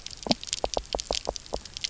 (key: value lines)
label: biophony, knock croak
recorder: SoundTrap 300